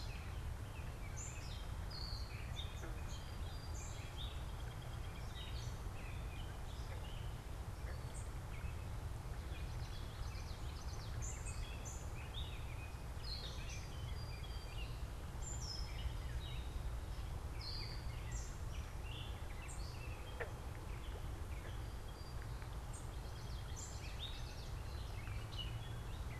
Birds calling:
Common Yellowthroat (Geothlypis trichas), unidentified bird, Song Sparrow (Melospiza melodia), Gray Catbird (Dumetella carolinensis)

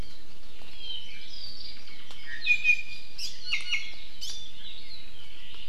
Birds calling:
Apapane (Himatione sanguinea), Hawaii Amakihi (Chlorodrepanis virens), Iiwi (Drepanis coccinea)

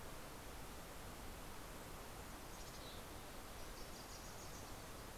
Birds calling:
Wilson's Warbler (Cardellina pusilla), Mountain Chickadee (Poecile gambeli)

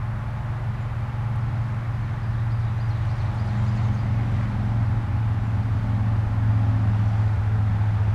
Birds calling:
Black-capped Chickadee (Poecile atricapillus), Ovenbird (Seiurus aurocapilla)

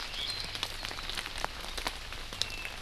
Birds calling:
Apapane (Himatione sanguinea), Iiwi (Drepanis coccinea)

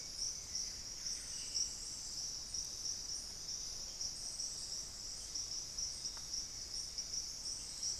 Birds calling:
Buff-breasted Wren (Cantorchilus leucotis), Hauxwell's Thrush (Turdus hauxwelli)

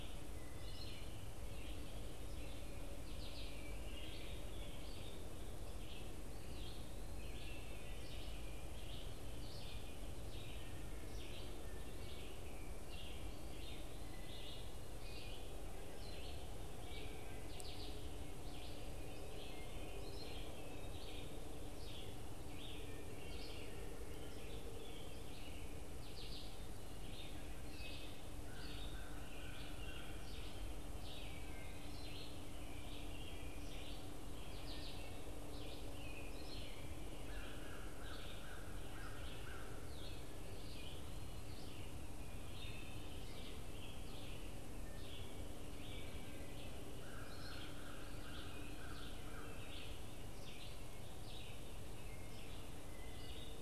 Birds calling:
Wood Thrush (Hylocichla mustelina), American Crow (Corvus brachyrhynchos), Red-eyed Vireo (Vireo olivaceus)

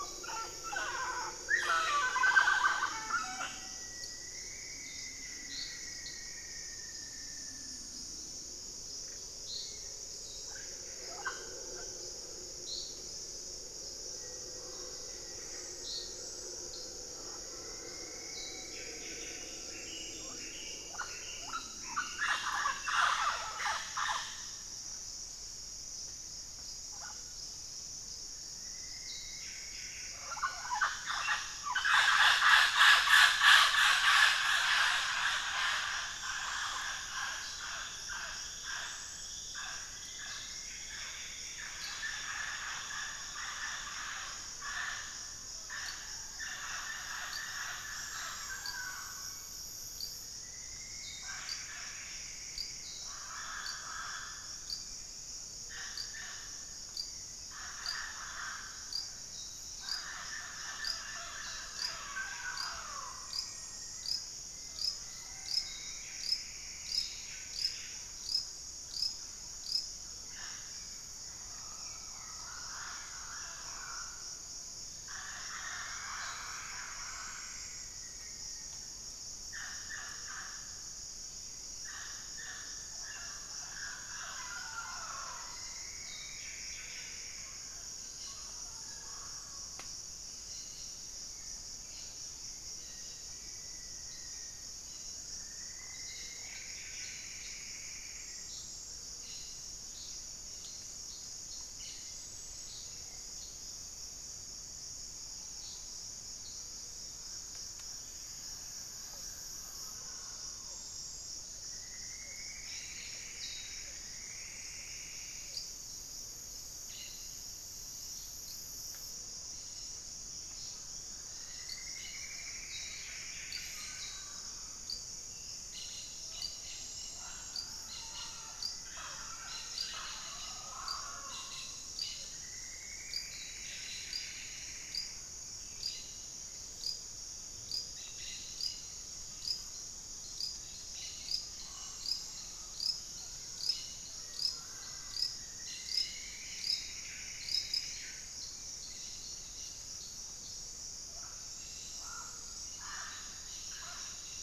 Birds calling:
White-rumped Sirystes (Sirystes albocinereus), Ruddy Quail-Dove (Geotrygon montana), Cobalt-winged Parakeet (Brotogeris cyanoptera), unidentified bird, Hauxwell's Thrush (Turdus hauxwelli), Buff-breasted Wren (Cantorchilus leucotis), Rufous-fronted Antthrush (Formicarius rufifrons), Black-faced Antthrush (Formicarius analis), Mealy Parrot (Amazona farinosa), Plumbeous Antbird (Myrmelastes hyperythrus)

